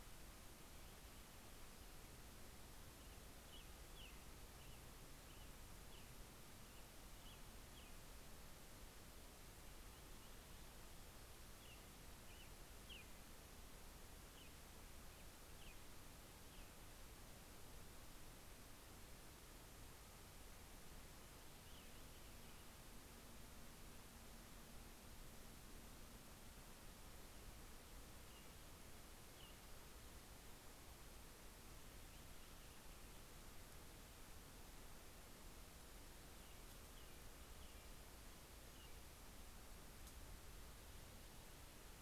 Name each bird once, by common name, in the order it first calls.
American Robin, Purple Finch